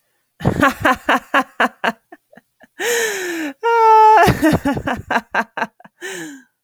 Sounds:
Laughter